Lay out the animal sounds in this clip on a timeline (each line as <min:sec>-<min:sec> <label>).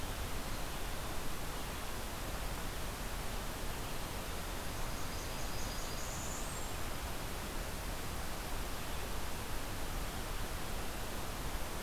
0:04.7-0:06.9 Blackburnian Warbler (Setophaga fusca)